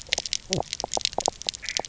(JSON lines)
{"label": "biophony, knock croak", "recorder": "SoundTrap 300"}